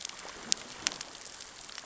{"label": "biophony, growl", "recorder": "SoundTrap 600 or HydroMoth"}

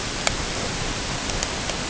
{"label": "ambient", "recorder": "HydroMoth"}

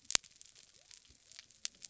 {"label": "biophony", "recorder": "SoundTrap 300"}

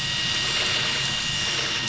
{"label": "anthrophony, boat engine", "recorder": "SoundTrap 500"}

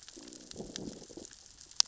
{"label": "biophony, growl", "recorder": "SoundTrap 600 or HydroMoth"}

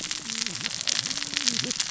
{"label": "biophony, cascading saw", "recorder": "SoundTrap 600 or HydroMoth"}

